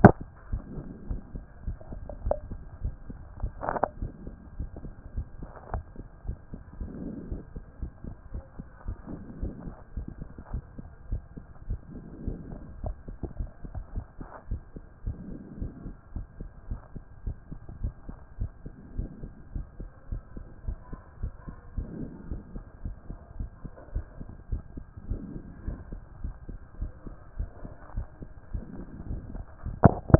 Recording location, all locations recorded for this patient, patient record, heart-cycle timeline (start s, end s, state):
pulmonary valve (PV)
aortic valve (AV)+pulmonary valve (PV)+tricuspid valve (TV)+mitral valve (MV)
#Age: Child
#Sex: Male
#Height: 158.0 cm
#Weight: 56.0 kg
#Pregnancy status: False
#Murmur: Absent
#Murmur locations: nan
#Most audible location: nan
#Systolic murmur timing: nan
#Systolic murmur shape: nan
#Systolic murmur grading: nan
#Systolic murmur pitch: nan
#Systolic murmur quality: nan
#Diastolic murmur timing: nan
#Diastolic murmur shape: nan
#Diastolic murmur grading: nan
#Diastolic murmur pitch: nan
#Diastolic murmur quality: nan
#Outcome: Abnormal
#Campaign: 2014 screening campaign
0.00	4.00	unannotated
4.00	4.12	S1
4.12	4.26	systole
4.26	4.34	S2
4.34	4.58	diastole
4.58	4.70	S1
4.70	4.84	systole
4.84	4.92	S2
4.92	5.16	diastole
5.16	5.26	S1
5.26	5.40	systole
5.40	5.50	S2
5.50	5.72	diastole
5.72	5.84	S1
5.84	5.98	systole
5.98	6.06	S2
6.06	6.26	diastole
6.26	6.38	S1
6.38	6.52	systole
6.52	6.62	S2
6.62	6.80	diastole
6.80	6.90	S1
6.90	7.00	systole
7.00	7.12	S2
7.12	7.30	diastole
7.30	7.42	S1
7.42	7.54	systole
7.54	7.64	S2
7.64	7.80	diastole
7.80	7.92	S1
7.92	8.06	systole
8.06	8.16	S2
8.16	8.32	diastole
8.32	8.44	S1
8.44	8.58	systole
8.58	8.66	S2
8.66	8.86	diastole
8.86	8.96	S1
8.96	9.10	systole
9.10	9.20	S2
9.20	9.40	diastole
9.40	9.54	S1
9.54	9.66	systole
9.66	9.74	S2
9.74	9.96	diastole
9.96	10.08	S1
10.08	10.18	systole
10.18	10.28	S2
10.28	10.52	diastole
10.52	10.64	S1
10.64	10.78	systole
10.78	10.88	S2
10.88	11.10	diastole
11.10	11.22	S1
11.22	11.36	systole
11.36	11.44	S2
11.44	11.68	diastole
11.68	11.80	S1
11.80	11.94	systole
11.94	12.02	S2
12.02	12.24	diastole
12.24	12.38	S1
12.38	12.50	systole
12.50	12.60	S2
12.60	12.82	diastole
12.82	12.96	S1
12.96	13.08	systole
13.08	13.18	S2
13.18	13.38	diastole
13.38	13.50	S1
13.50	13.64	systole
13.64	13.72	S2
13.72	13.94	diastole
13.94	14.04	S1
14.04	14.20	systole
14.20	14.28	S2
14.28	14.50	diastole
14.50	14.62	S1
14.62	14.76	systole
14.76	14.84	S2
14.84	15.06	diastole
15.06	15.18	S1
15.18	15.28	systole
15.28	15.38	S2
15.38	15.60	diastole
15.60	15.72	S1
15.72	15.84	systole
15.84	15.94	S2
15.94	16.14	diastole
16.14	16.26	S1
16.26	16.40	systole
16.40	16.50	S2
16.50	16.68	diastole
16.68	16.80	S1
16.80	16.94	systole
16.94	17.02	S2
17.02	17.24	diastole
17.24	17.36	S1
17.36	17.50	systole
17.50	17.60	S2
17.60	17.82	diastole
17.82	17.94	S1
17.94	18.08	systole
18.08	18.16	S2
18.16	18.40	diastole
18.40	18.50	S1
18.50	18.64	systole
18.64	18.72	S2
18.72	18.96	diastole
18.96	19.10	S1
19.10	19.22	systole
19.22	19.32	S2
19.32	19.54	diastole
19.54	19.66	S1
19.66	19.80	systole
19.80	19.90	S2
19.90	20.10	diastole
20.10	20.22	S1
20.22	20.36	systole
20.36	20.44	S2
20.44	20.66	diastole
20.66	20.78	S1
20.78	20.92	systole
20.92	21.00	S2
21.00	21.22	diastole
21.22	21.32	S1
21.32	21.46	systole
21.46	21.56	S2
21.56	21.76	diastole
21.76	21.88	S1
21.88	22.00	systole
22.00	22.10	S2
22.10	22.30	diastole
22.30	22.42	S1
22.42	22.54	systole
22.54	22.64	S2
22.64	22.84	diastole
22.84	22.96	S1
22.96	23.08	systole
23.08	23.18	S2
23.18	23.38	diastole
23.38	23.50	S1
23.50	23.64	systole
23.64	23.72	S2
23.72	23.94	diastole
23.94	24.06	S1
24.06	24.18	systole
24.18	24.28	S2
24.28	24.50	diastole
24.50	24.62	S1
24.62	24.76	systole
24.76	24.84	S2
24.84	25.08	diastole
25.08	25.22	S1
25.22	25.34	systole
25.34	25.42	S2
25.42	25.66	diastole
25.66	25.78	S1
25.78	25.92	systole
25.92	26.00	S2
26.00	26.22	diastole
26.22	26.34	S1
26.34	26.50	systole
26.50	26.58	S2
26.58	26.80	diastole
26.80	26.92	S1
26.92	27.06	systole
27.06	27.16	S2
27.16	27.38	diastole
27.38	27.50	S1
27.50	27.62	systole
27.62	27.72	S2
27.72	27.96	diastole
27.96	28.06	S1
28.06	28.20	systole
28.20	28.30	S2
28.30	28.52	diastole
28.52	28.64	S1
28.64	28.76	systole
28.76	28.84	S2
28.84	29.08	diastole
29.08	29.22	S1
29.22	29.34	systole
29.34	29.44	S2
29.44	29.67	diastole
29.67	30.19	unannotated